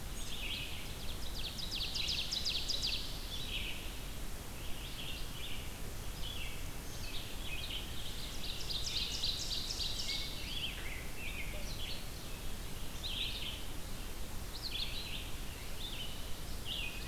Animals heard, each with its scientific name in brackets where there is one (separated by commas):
Ovenbird (Seiurus aurocapilla), Red-eyed Vireo (Vireo olivaceus)